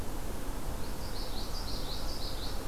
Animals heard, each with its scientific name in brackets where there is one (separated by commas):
Common Yellowthroat (Geothlypis trichas)